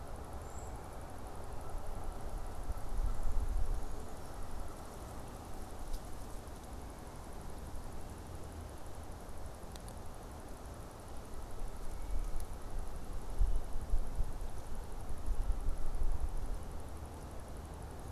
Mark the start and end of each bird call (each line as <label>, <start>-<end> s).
Brown Creeper (Certhia americana), 0.3-0.8 s